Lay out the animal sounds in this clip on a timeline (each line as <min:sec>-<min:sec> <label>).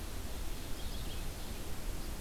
0:00.0-0:02.2 Red-eyed Vireo (Vireo olivaceus)